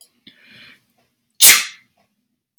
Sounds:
Sneeze